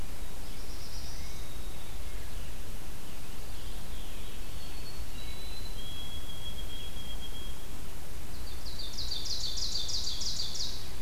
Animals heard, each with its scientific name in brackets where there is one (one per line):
Ovenbird (Seiurus aurocapilla)
Black-throated Blue Warbler (Setophaga caerulescens)
Veery (Catharus fuscescens)
White-throated Sparrow (Zonotrichia albicollis)